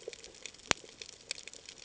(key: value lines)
label: ambient
recorder: HydroMoth